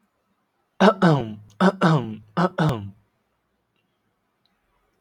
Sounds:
Cough